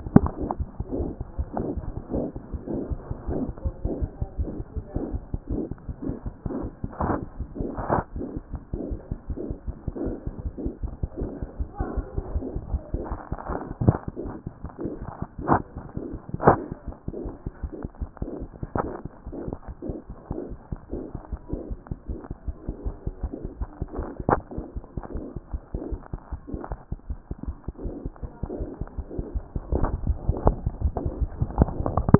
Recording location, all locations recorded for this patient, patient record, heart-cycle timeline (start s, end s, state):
aortic valve (AV)
aortic valve (AV)+mitral valve (MV)
#Age: Infant
#Sex: Male
#Height: 59.0 cm
#Weight: 7.1 kg
#Pregnancy status: False
#Murmur: Absent
#Murmur locations: nan
#Most audible location: nan
#Systolic murmur timing: nan
#Systolic murmur shape: nan
#Systolic murmur grading: nan
#Systolic murmur pitch: nan
#Systolic murmur quality: nan
#Diastolic murmur timing: nan
#Diastolic murmur shape: nan
#Diastolic murmur grading: nan
#Diastolic murmur pitch: nan
#Diastolic murmur quality: nan
#Outcome: Abnormal
#Campaign: 2014 screening campaign
0.00	26.32	unannotated
26.32	26.40	S1
26.40	26.54	systole
26.54	26.60	S2
26.60	26.72	diastole
26.72	26.80	S1
26.80	26.92	systole
26.92	26.96	S2
26.96	27.10	diastole
27.10	27.18	S1
27.18	27.32	systole
27.32	27.36	S2
27.36	27.48	diastole
27.48	27.56	S1
27.56	27.68	systole
27.68	27.72	S2
27.72	27.84	diastole
27.84	27.94	S1
27.94	28.06	systole
28.06	28.12	S2
28.12	28.24	diastole
28.24	32.19	unannotated